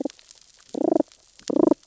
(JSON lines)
{"label": "biophony, damselfish", "recorder": "SoundTrap 600 or HydroMoth"}